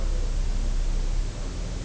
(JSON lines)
{"label": "biophony", "recorder": "SoundTrap 300"}